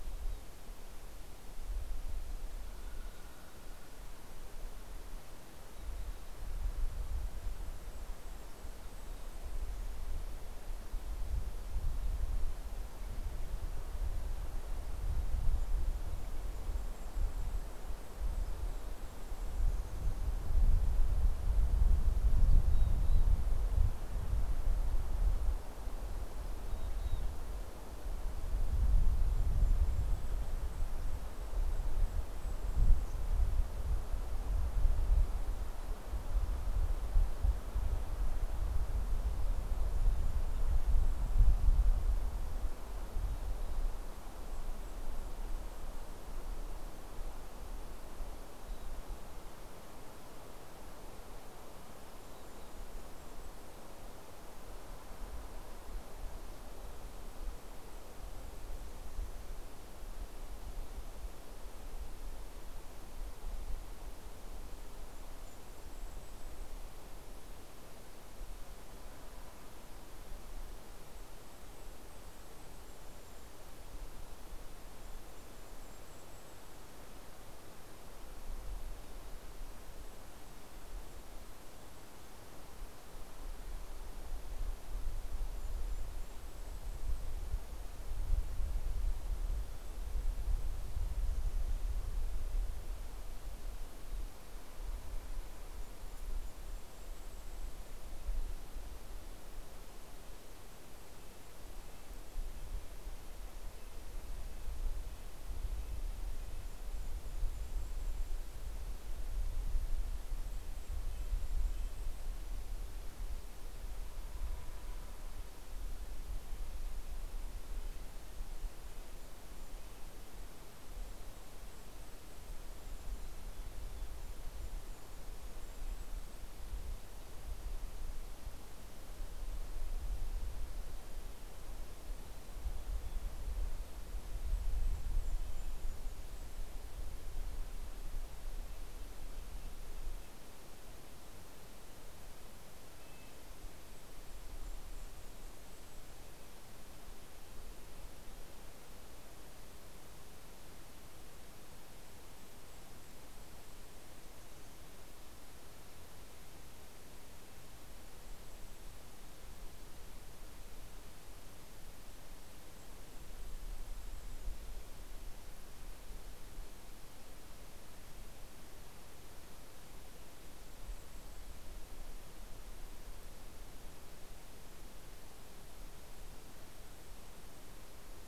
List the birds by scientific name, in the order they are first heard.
Poecile gambeli, Regulus satrapa, Sitta canadensis